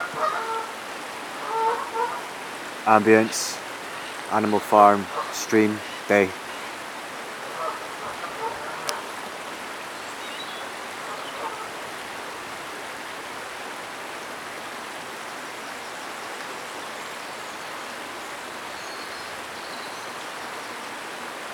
Are there animal sounds in the background?
yes